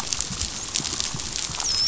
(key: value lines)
label: biophony, dolphin
recorder: SoundTrap 500